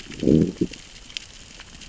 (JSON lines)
{"label": "biophony, growl", "recorder": "SoundTrap 600 or HydroMoth"}